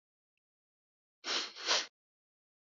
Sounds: Sniff